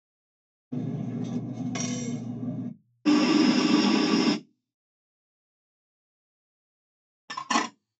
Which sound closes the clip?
cutlery